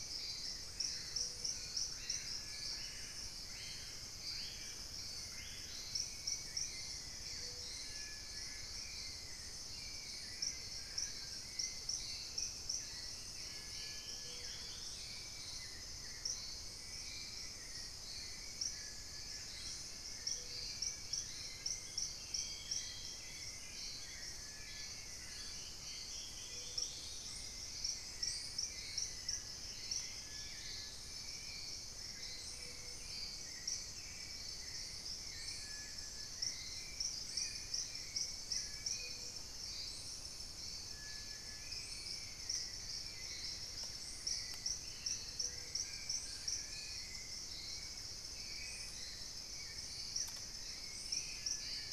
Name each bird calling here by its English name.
Hauxwell's Thrush, Screaming Piha, Collared Trogon, Dusky-throated Antshrike, unidentified bird, Plain-winged Antshrike, Ferruginous Pygmy-Owl, Spot-winged Antshrike, Thrush-like Wren